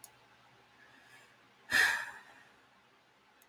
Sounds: Sigh